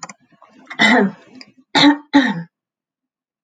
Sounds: Throat clearing